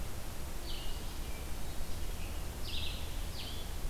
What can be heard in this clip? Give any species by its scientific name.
Vireo olivaceus